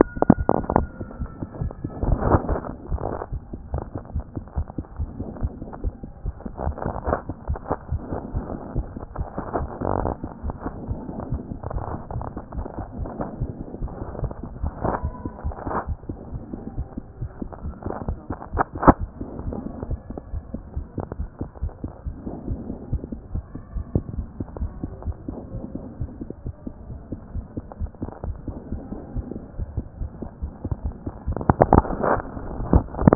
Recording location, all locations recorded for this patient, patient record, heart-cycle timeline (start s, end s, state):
aortic valve (AV)
aortic valve (AV)+pulmonary valve (PV)+tricuspid valve (TV)+mitral valve (MV)
#Age: Adolescent
#Sex: Female
#Height: 163.0 cm
#Weight: 45.8 kg
#Pregnancy status: False
#Murmur: Absent
#Murmur locations: nan
#Most audible location: nan
#Systolic murmur timing: nan
#Systolic murmur shape: nan
#Systolic murmur grading: nan
#Systolic murmur pitch: nan
#Systolic murmur quality: nan
#Diastolic murmur timing: nan
#Diastolic murmur shape: nan
#Diastolic murmur grading: nan
#Diastolic murmur pitch: nan
#Diastolic murmur quality: nan
#Outcome: Abnormal
#Campaign: 2014 screening campaign
0.00	20.32	unannotated
20.32	20.42	S1
20.42	20.54	systole
20.54	20.62	S2
20.62	20.76	diastole
20.76	20.86	S1
20.86	20.96	systole
20.96	21.06	S2
21.06	21.18	diastole
21.18	21.28	S1
21.28	21.40	systole
21.40	21.48	S2
21.48	21.62	diastole
21.62	21.72	S1
21.72	21.82	systole
21.82	21.92	S2
21.92	22.06	diastole
22.06	22.16	S1
22.16	22.26	systole
22.26	22.34	S2
22.34	22.48	diastole
22.48	22.60	S1
22.60	22.68	systole
22.68	22.76	S2
22.76	22.92	diastole
22.92	23.02	S1
23.02	23.12	systole
23.12	23.20	S2
23.20	23.34	diastole
23.34	23.44	S1
23.44	23.54	systole
23.54	23.60	S2
23.60	23.74	diastole
23.74	23.84	S1
23.84	23.94	systole
23.94	24.04	S2
24.04	24.16	diastole
24.16	24.26	S1
24.26	24.38	systole
24.38	24.46	S2
24.46	24.60	diastole
24.60	24.72	S1
24.72	24.82	systole
24.82	24.90	S2
24.90	25.06	diastole
25.06	25.16	S1
25.16	25.28	systole
25.28	25.38	S2
25.38	25.54	diastole
25.54	25.64	S1
25.64	25.74	systole
25.74	25.84	S2
25.84	26.00	diastole
26.00	26.10	S1
26.10	26.22	systole
26.22	26.30	S2
26.30	26.46	diastole
26.46	26.54	S1
26.54	26.66	systole
26.66	26.74	S2
26.74	26.90	diastole
26.90	27.00	S1
27.00	27.10	systole
27.10	27.20	S2
27.20	27.34	diastole
27.34	27.44	S1
27.44	27.56	systole
27.56	27.64	S2
27.64	27.80	diastole
27.80	27.90	S1
27.90	28.02	systole
28.02	28.10	S2
28.10	28.26	diastole
28.26	28.36	S1
28.36	28.46	systole
28.46	28.56	S2
28.56	28.72	diastole
28.72	28.82	S1
28.82	28.92	systole
28.92	29.00	S2
29.00	29.14	diastole
29.14	29.24	S1
29.24	29.34	systole
29.34	29.42	S2
29.42	29.58	diastole
29.58	29.68	S1
29.68	29.76	systole
29.76	29.84	S2
29.84	30.00	diastole
30.00	30.10	S1
30.10	30.20	systole
30.20	30.30	S2
30.30	30.42	diastole
30.42	30.52	S1
30.52	30.66	systole
30.66	30.76	S2
30.76	30.84	diastole
30.84	30.94	S1
30.94	31.06	systole
31.06	31.12	S2
31.12	31.28	diastole
31.28	33.15	unannotated